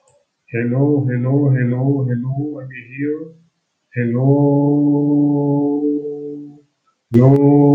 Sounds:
Cough